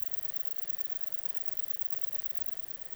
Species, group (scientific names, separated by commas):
Conocephalus fuscus, Orthoptera